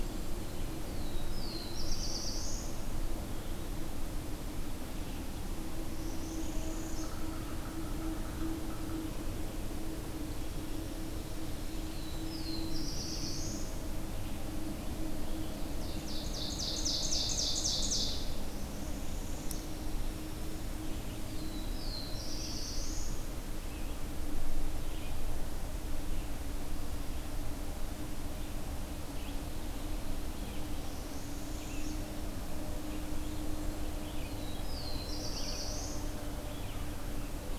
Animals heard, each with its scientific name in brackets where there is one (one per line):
Black-throated Blue Warbler (Setophaga caerulescens)
Blackburnian Warbler (Setophaga fusca)
Northern Parula (Setophaga americana)
Red-eyed Vireo (Vireo olivaceus)
Yellow-bellied Sapsucker (Sphyrapicus varius)
Ovenbird (Seiurus aurocapilla)